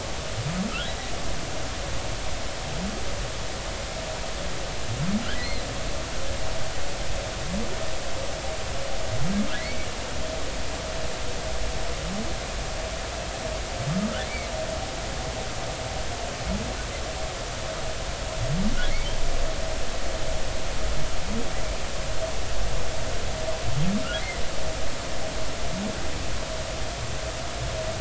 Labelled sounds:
0.9	1.1	humpback whale, 3.7 to 4.0 kHz
5.4	5.7	humpback whale, 3.9 to 4.3 kHz
9.6	9.9	humpback whale, 1.9 to 2.4 kHz

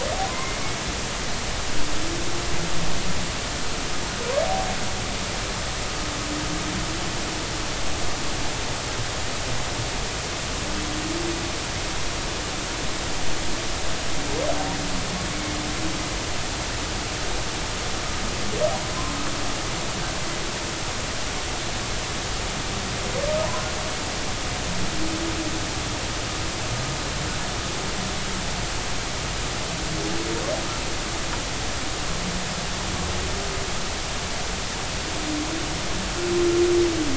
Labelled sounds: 0.3	0.6	humpback whale, 0.96 to 2.2 kHz
23.4	23.7	humpback whale, 0.86 to 1.1 kHz

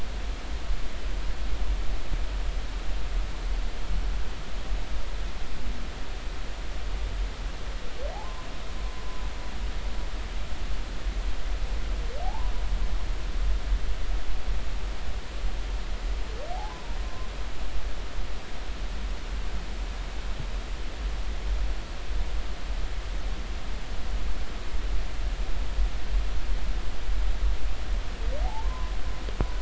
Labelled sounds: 12.2	12.5	humpback whale, 0.80 to 1.1 kHz
16.5	17.3	humpback whale, 0.80 to 1.1 kHz
28.4	28.9	humpback whale, 0.80 to 1.1 kHz

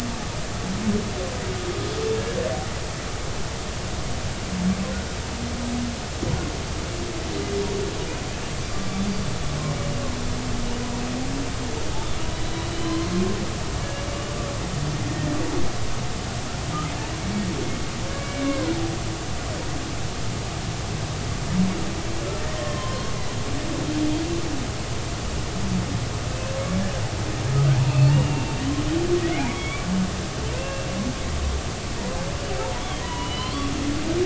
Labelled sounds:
12.4	13.1	humpback whale, 0.99 to 4.0 kHz
18.2	18.7	humpback whale, 0.93 to 2.3 kHz
22.4	23.1	humpback whale, 0.96 to 3.2 kHz
27.9	28.5	humpback whale, 2.4 to 2.9 kHz
29.5	29.8	humpback whale, 2.1 to 3.5 kHz
30.5	30.9	humpback whale, 2.4 to 2.8 kHz
33.0	33.7	humpback whale, 0.90 to 4.3 kHz

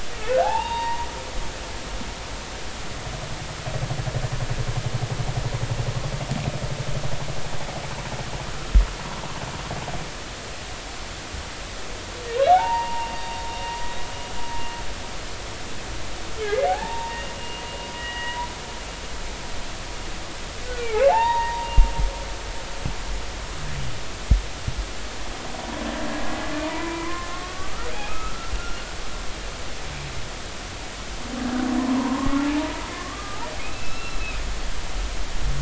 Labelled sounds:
0.4	1.1	humpback whale, 0.80 to 4.7 kHz
12.5	13.1	humpback whale, 0.80 to 2.9 kHz
16.4	18.5	humpback whale, 0.80 to 2.9 kHz
20.8	21.9	humpback whale, 0.80 to 3.8 kHz
26.6	28.5	humpback whale, 0.86 to 2.6 kHz
31.8	34.3	humpback whale, 0.80 to 4.1 kHz

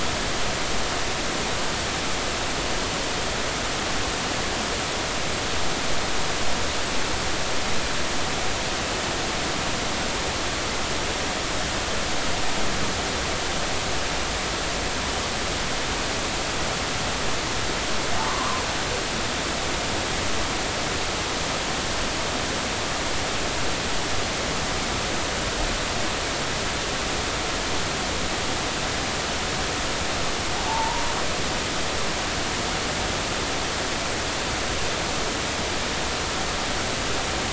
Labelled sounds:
18.3	18.7	humpback whale, 0.93 to 1.2 kHz
31.7	32.0	humpback whale, 0.83 to 1.0 kHz

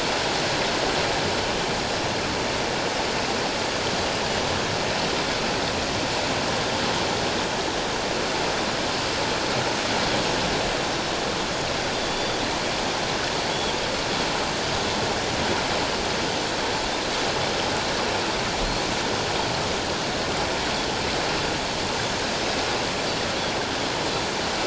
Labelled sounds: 11.9	12.4	Pacific white-sided dolphin, 3.4 to 3.6 kHz

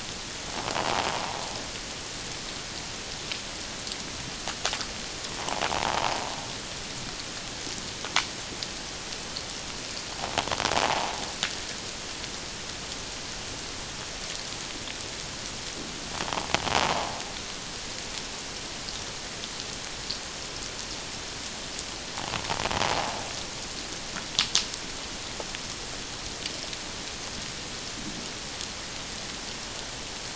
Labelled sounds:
0.7	1.0	invertebrate grinding on or near the hydrophone, 0.78 to 1.1 kHz
5.7	6.1	invertebrate grinding on or near the hydrophone, 0.78 to 1.0 kHz
10.8	11.1	invertebrate grinding on or near the hydrophone, 0.78 to 1.0 kHz

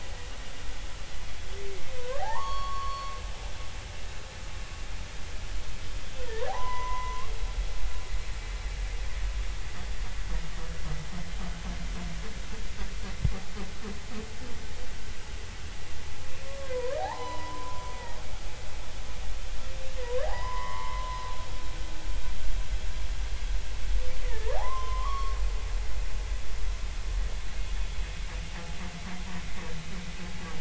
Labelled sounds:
2.2	3.2	humpback whale, 0.80 to 4.5 kHz
6.5	7.3	humpback whale, 0.80 to 2.1 kHz
16.4	17.9	humpback whale, 0.80 to 4.1 kHz
20.2	21.3	humpback whale, 0.80 to 2.2 kHz
24.2	25.4	humpback whale, 0.80 to 5.5 kHz

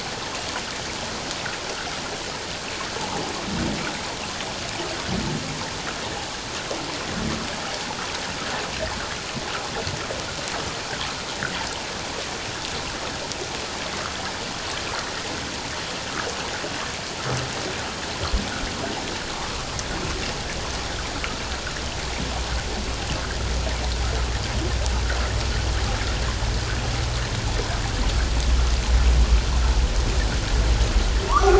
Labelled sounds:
31.3	31.5	humpback whale, 0.88 to 1.5 kHz

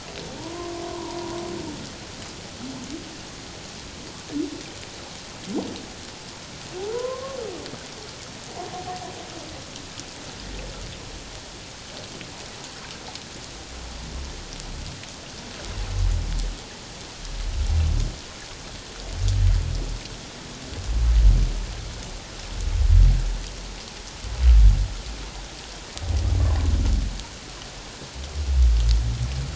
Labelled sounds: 6.8	7.4	humpback whale, 0.78 to 1.2 kHz

